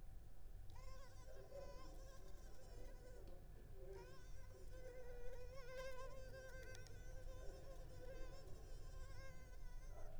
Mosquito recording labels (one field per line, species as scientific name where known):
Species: Culex pipiens complex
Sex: female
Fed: unfed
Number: one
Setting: cup